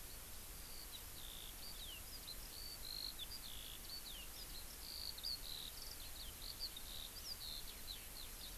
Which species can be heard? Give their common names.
Eurasian Skylark